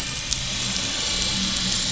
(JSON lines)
{"label": "anthrophony, boat engine", "recorder": "SoundTrap 500"}